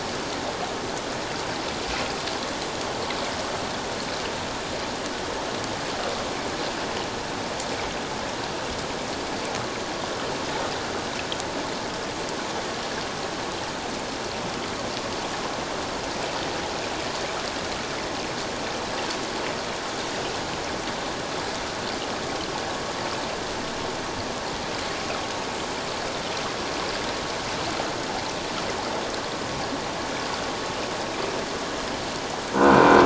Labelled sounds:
32.6	33.0	croaking sound likely from a nearby submerged object, 1.3 to 2.5 kHz

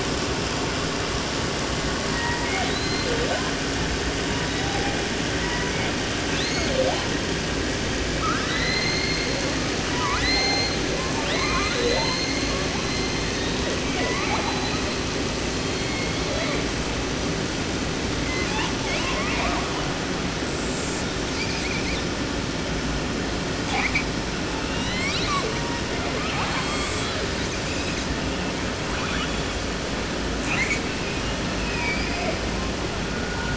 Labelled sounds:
2.0	3.5	killer whale, southern resident, J pod, call S01 and call S02i, 0.30 to 5.0 kHz
4.2	5.0	killer whale, 0.42 to 4.3 kHz
5.3	6.0	killer whale, 0.35 to 2.7 kHz
6.2	7.1	killer whale, southern resident, J pod, call S02i, 0.30 to 8.0 kHz
8.1	12.8	killer whale, southern resident, J pod, call S02i, 0.30 to 8.0 kHz
12.8	13.8	killer whale, 0.90 to 8.0 kHz
13.8	15.2	killer whale, southern resident, J pod, call S42, 0.30 to 8.0 kHz
15.5	16.7	killer whale, 0.31 to 4.9 kHz
18.1	18.8	killer whale, southern resident, 0.30 to 8.0 kHz
18.8	19.9	killer whale, 0.30 to 8.0 kHz
20.4	22.2	killer whale, 0.51 to 8.0 kHz
23.6	24.0	killer whale, 0.30 to 8.0 kHz
24.4	28.5	killer whale, 0.27 to 8.0 kHz
28.8	29.6	killer whale, 0.30 to 7.4 kHz
30.4	30.8	killer whale, southern resident, 0.30 to 8.0 kHz
31.5	32.4	killer whale, southern resident, J pod, call S01, 0.30 to 5.9 kHz

